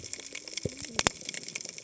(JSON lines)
{"label": "biophony, cascading saw", "recorder": "HydroMoth"}